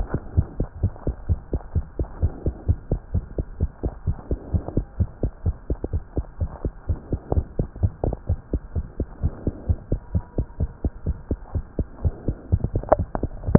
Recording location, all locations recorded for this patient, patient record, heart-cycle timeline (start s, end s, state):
tricuspid valve (TV)
aortic valve (AV)+pulmonary valve (PV)+tricuspid valve (TV)+mitral valve (MV)
#Age: Child
#Sex: Female
#Height: 99.0 cm
#Weight: 31.1 kg
#Pregnancy status: False
#Murmur: Absent
#Murmur locations: nan
#Most audible location: nan
#Systolic murmur timing: nan
#Systolic murmur shape: nan
#Systolic murmur grading: nan
#Systolic murmur pitch: nan
#Systolic murmur quality: nan
#Diastolic murmur timing: nan
#Diastolic murmur shape: nan
#Diastolic murmur grading: nan
#Diastolic murmur pitch: nan
#Diastolic murmur quality: nan
#Outcome: Normal
#Campaign: 2015 screening campaign
0.00	0.34	unannotated
0.34	0.46	S1
0.46	0.58	systole
0.58	0.68	S2
0.68	0.80	diastole
0.80	0.92	S1
0.92	1.05	systole
1.05	1.16	S2
1.16	1.26	diastole
1.26	1.40	S1
1.40	1.50	systole
1.50	1.62	S2
1.62	1.72	diastole
1.72	1.86	S1
1.86	1.96	systole
1.96	2.08	S2
2.08	2.19	diastole
2.19	2.32	S1
2.32	2.43	systole
2.43	2.56	S2
2.56	2.66	diastole
2.66	2.78	S1
2.78	2.89	systole
2.89	3.00	S2
3.00	3.11	diastole
3.11	3.24	S1
3.24	3.36	systole
3.36	3.46	S2
3.46	3.58	diastole
3.58	3.70	S1
3.70	3.81	systole
3.81	3.94	S2
3.94	4.04	diastole
4.04	4.18	S1
4.18	4.28	systole
4.28	4.40	S2
4.40	4.50	diastole
4.50	4.62	S1
4.62	4.75	systole
4.75	4.86	S2
4.86	4.98	diastole
4.98	5.08	S1
5.08	5.22	systole
5.22	5.32	S2
5.32	5.43	diastole
5.43	5.56	S1
5.56	5.68	systole
5.68	5.78	S2
5.78	5.91	diastole
5.91	6.02	S1
6.02	6.14	systole
6.14	6.26	S2
6.26	6.39	diastole
6.39	6.50	S1
6.50	6.61	systole
6.61	6.74	S2
6.74	6.86	diastole
6.86	7.00	S1
7.00	7.11	systole
7.11	7.20	S2
7.20	7.34	diastole
7.34	7.46	S1
7.46	7.56	systole
7.56	7.68	S2
7.68	7.80	diastole
7.80	7.92	S1
7.92	8.04	systole
8.04	8.16	S2
8.16	8.26	diastole
8.26	8.38	S1
8.38	8.51	systole
8.51	8.60	S2
8.60	8.73	diastole
8.73	8.86	S1
8.86	8.97	systole
8.97	9.08	S2
9.08	9.19	diastole
9.19	9.32	S1
9.32	9.44	systole
9.44	9.54	S2
9.54	9.66	diastole
9.66	9.77	S1
9.77	9.88	systole
9.88	10.00	S2
10.00	10.12	diastole
10.12	10.24	S1
10.24	10.35	systole
10.35	10.46	S2
10.46	10.57	diastole
10.57	10.70	S1
10.70	10.81	systole
10.81	10.92	S2
10.92	11.03	diastole
11.03	11.16	S1
11.16	11.27	systole
11.27	11.38	S2
11.38	11.52	diastole
11.52	11.66	S1
11.66	11.76	systole
11.76	11.88	S2
11.88	12.01	diastole
12.01	12.14	S1
12.14	12.25	systole
12.25	12.36	S2
12.36	12.50	diastole
12.50	12.61	S1
12.61	13.58	unannotated